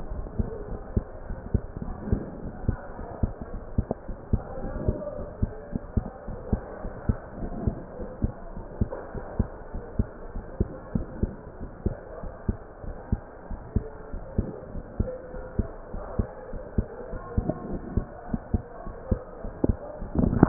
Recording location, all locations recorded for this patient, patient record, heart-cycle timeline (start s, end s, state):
pulmonary valve (PV)
aortic valve (AV)+pulmonary valve (PV)+tricuspid valve (TV)+mitral valve (MV)
#Age: Adolescent
#Sex: Female
#Height: 156.0 cm
#Weight: 36.7 kg
#Pregnancy status: False
#Murmur: Absent
#Murmur locations: nan
#Most audible location: nan
#Systolic murmur timing: nan
#Systolic murmur shape: nan
#Systolic murmur grading: nan
#Systolic murmur pitch: nan
#Systolic murmur quality: nan
#Diastolic murmur timing: nan
#Diastolic murmur shape: nan
#Diastolic murmur grading: nan
#Diastolic murmur pitch: nan
#Diastolic murmur quality: nan
#Outcome: Abnormal
#Campaign: 2015 screening campaign
0.00	0.50	unannotated
0.50	0.67	diastole
0.67	0.82	S1
0.82	0.92	systole
0.92	1.06	S2
1.06	1.28	diastole
1.28	1.42	S1
1.42	1.50	systole
1.50	1.62	S2
1.62	1.86	diastole
1.86	1.98	S1
1.98	2.06	systole
2.06	2.22	S2
2.22	2.44	diastole
2.44	2.54	S1
2.54	2.62	systole
2.62	2.78	S2
2.78	3.00	diastole
3.00	3.08	S1
3.08	3.18	systole
3.18	3.34	S2
3.34	3.52	diastole
3.52	3.62	S1
3.62	3.72	systole
3.72	3.86	S2
3.86	4.08	diastole
4.08	4.16	S1
4.16	4.28	systole
4.28	4.44	S2
4.44	4.64	diastole
4.64	4.82	S1
4.82	4.86	systole
4.86	5.00	S2
5.00	5.18	diastole
5.18	5.28	S1
5.28	5.38	systole
5.38	5.52	S2
5.52	5.74	diastole
5.74	5.82	S1
5.82	5.92	systole
5.92	6.06	S2
6.06	6.28	diastole
6.28	6.40	S1
6.40	6.48	systole
6.48	6.62	S2
6.62	6.84	diastole
6.84	6.92	S1
6.92	7.04	systole
7.04	7.18	S2
7.18	7.40	diastole
7.40	7.54	S1
7.54	7.64	systole
7.64	7.78	S2
7.78	8.00	diastole
8.00	8.10	S1
8.10	8.22	systole
8.22	8.34	S2
8.34	8.56	diastole
8.56	8.66	S1
8.66	8.78	systole
8.78	8.90	S2
8.90	9.14	diastole
9.14	9.24	S1
9.24	9.36	systole
9.36	9.50	S2
9.50	9.74	diastole
9.74	9.84	S1
9.84	9.94	systole
9.94	10.08	S2
10.08	10.34	diastole
10.34	10.44	S1
10.44	10.56	systole
10.56	10.72	S2
10.72	10.94	diastole
10.94	11.08	S1
11.08	11.20	systole
11.20	11.34	S2
11.34	11.62	diastole
11.62	11.70	S1
11.70	11.82	systole
11.82	11.98	S2
11.98	12.24	diastole
12.24	12.32	S1
12.32	12.44	systole
12.44	12.58	S2
12.58	12.84	diastole
12.84	12.96	S1
12.96	13.08	systole
13.08	13.22	S2
13.22	13.50	diastole
13.50	13.60	S1
13.60	13.72	systole
13.72	13.86	S2
13.86	14.14	diastole
14.14	14.24	S1
14.24	14.34	systole
14.34	14.50	S2
14.50	14.74	diastole
14.74	14.84	S1
14.84	14.96	systole
14.96	15.12	S2
15.12	15.34	diastole
15.34	15.44	S1
15.44	15.58	systole
15.58	15.70	S2
15.70	15.94	diastole
15.94	16.06	S1
16.06	16.16	systole
16.16	16.28	S2
16.28	16.54	diastole
16.54	16.62	S1
16.62	16.74	systole
16.74	16.88	S2
16.88	17.14	diastole
17.14	17.22	S1
17.22	17.34	systole
17.34	17.46	S2
17.46	17.68	diastole
17.68	17.82	S1
17.82	17.94	systole
17.94	18.08	S2
18.08	18.30	diastole
18.30	18.42	S1
18.42	18.50	systole
18.50	18.64	S2
18.64	18.86	diastole
18.86	18.94	S1
18.94	19.08	systole
19.08	19.22	S2
19.22	19.44	diastole
19.44	19.54	S1
19.54	19.68	systole
19.68	19.84	S2
19.84	20.14	diastole
20.14	20.48	unannotated